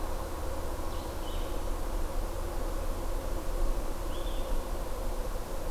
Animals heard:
Blue-headed Vireo (Vireo solitarius)

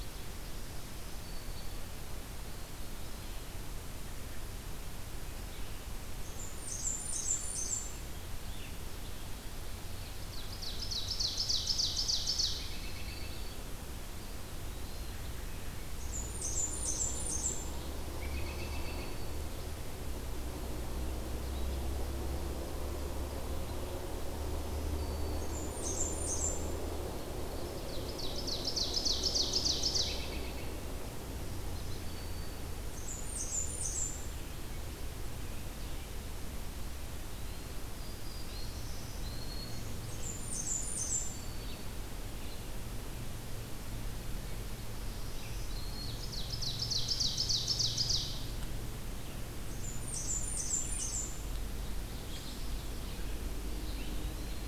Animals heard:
Black-throated Green Warbler (Setophaga virens), American Robin (Turdus migratorius), Red-eyed Vireo (Vireo olivaceus), Blackburnian Warbler (Setophaga fusca), Ovenbird (Seiurus aurocapilla), Eastern Wood-Pewee (Contopus virens)

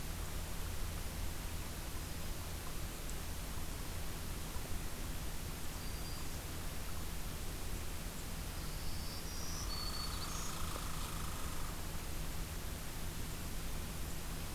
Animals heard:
Black-throated Green Warbler (Setophaga virens), Red Squirrel (Tamiasciurus hudsonicus)

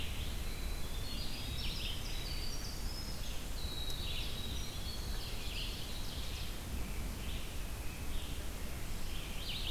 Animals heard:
Red-eyed Vireo (Vireo olivaceus), Winter Wren (Troglodytes hiemalis), Ovenbird (Seiurus aurocapilla)

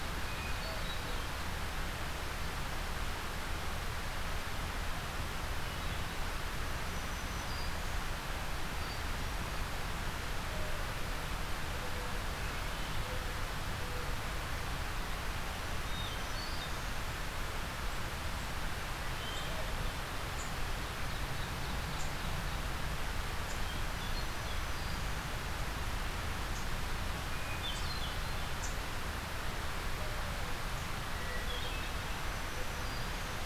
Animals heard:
Hermit Thrush (Catharus guttatus), Black-throated Green Warbler (Setophaga virens)

